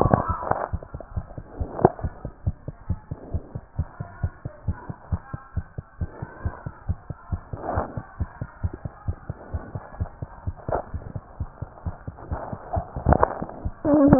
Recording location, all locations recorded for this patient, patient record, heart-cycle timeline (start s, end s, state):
tricuspid valve (TV)
aortic valve (AV)+pulmonary valve (PV)+tricuspid valve (TV)+mitral valve (MV)
#Age: Child
#Sex: Male
#Height: 94.0 cm
#Weight: 13.3 kg
#Pregnancy status: False
#Murmur: Absent
#Murmur locations: nan
#Most audible location: nan
#Systolic murmur timing: nan
#Systolic murmur shape: nan
#Systolic murmur grading: nan
#Systolic murmur pitch: nan
#Systolic murmur quality: nan
#Diastolic murmur timing: nan
#Diastolic murmur shape: nan
#Diastolic murmur grading: nan
#Diastolic murmur pitch: nan
#Diastolic murmur quality: nan
#Outcome: Normal
#Campaign: 2014 screening campaign
0.00	2.04	unannotated
2.04	2.12	S1
2.12	2.24	systole
2.24	2.32	S2
2.32	2.46	diastole
2.46	2.56	S1
2.56	2.66	systole
2.66	2.74	S2
2.74	2.88	diastole
2.88	2.98	S1
2.98	3.08	systole
3.08	3.18	S2
3.18	3.32	diastole
3.32	3.42	S1
3.42	3.54	systole
3.54	3.62	S2
3.62	3.78	diastole
3.78	3.88	S1
3.88	3.98	systole
3.98	4.08	S2
4.08	4.22	diastole
4.22	4.32	S1
4.32	4.42	systole
4.42	4.52	S2
4.52	4.66	diastole
4.66	4.78	S1
4.78	4.86	systole
4.86	4.96	S2
4.96	5.10	diastole
5.10	5.20	S1
5.20	5.32	systole
5.32	5.40	S2
5.40	5.56	diastole
5.56	5.66	S1
5.66	5.76	systole
5.76	5.84	S2
5.84	6.00	diastole
6.00	6.10	S1
6.10	6.20	systole
6.20	6.30	S2
6.30	6.44	diastole
6.44	6.54	S1
6.54	6.64	systole
6.64	6.74	S2
6.74	6.88	diastole
6.88	6.98	S1
6.98	7.08	systole
7.08	7.16	S2
7.16	7.32	diastole
7.32	7.42	S1
7.42	7.50	systole
7.50	7.60	S2
7.60	7.74	diastole
7.74	7.86	S1
7.86	7.96	systole
7.96	8.04	S2
8.04	8.20	diastole
8.20	8.30	S1
8.30	8.40	systole
8.40	8.48	S2
8.48	8.62	diastole
8.62	8.74	S1
8.74	8.82	systole
8.82	8.92	S2
8.92	9.06	diastole
9.06	9.16	S1
9.16	9.28	systole
9.28	9.36	S2
9.36	9.52	diastole
9.52	9.62	S1
9.62	9.74	systole
9.74	9.82	S2
9.82	9.98	diastole
9.98	10.10	S1
10.10	10.20	systole
10.20	10.30	S2
10.30	10.46	diastole
10.46	10.56	S1
10.56	10.70	systole
10.70	10.80	S2
10.80	10.94	diastole
10.94	11.04	S1
11.04	11.16	systole
11.16	11.24	S2
11.24	11.40	diastole
11.40	11.50	S1
11.50	11.60	systole
11.60	11.70	S2
11.70	11.86	diastole
11.86	11.96	S1
11.96	12.08	systole
12.08	12.16	S2
12.16	12.31	diastole
12.31	14.19	unannotated